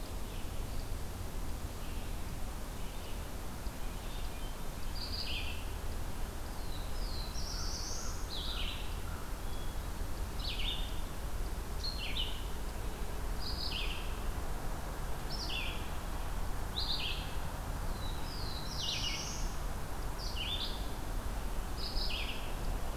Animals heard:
Black-throated Blue Warbler (Setophaga caerulescens)
Hermit Thrush (Catharus guttatus)
Red-eyed Vireo (Vireo olivaceus)

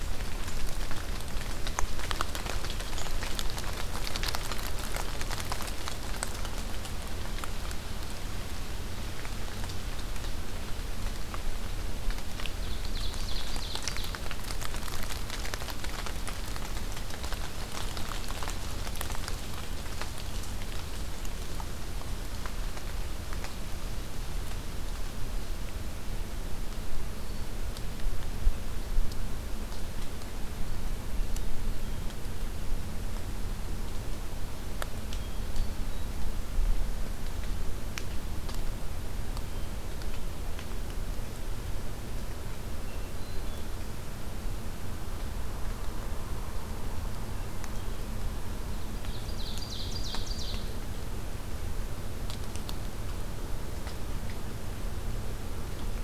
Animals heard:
Hermit Thrush (Catharus guttatus)
Ovenbird (Seiurus aurocapilla)

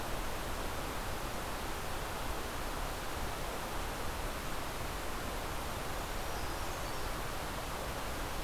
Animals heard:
Brown Creeper (Certhia americana)

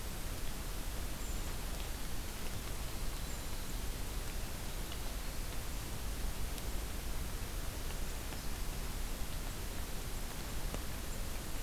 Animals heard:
Brown Creeper (Certhia americana)

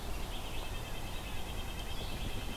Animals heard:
Red-breasted Nuthatch (Sitta canadensis)

